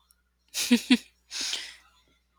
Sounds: Laughter